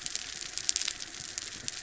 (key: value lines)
label: anthrophony, boat engine
recorder: SoundTrap 300